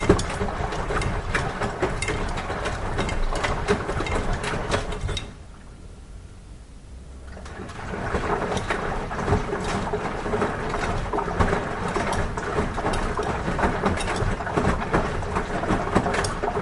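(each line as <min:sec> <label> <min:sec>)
0:00.0 Clothes tumbling and swishing inside a water-filled washing machine, producing rhythmic sloshing and mechanical humming sounds. 0:16.6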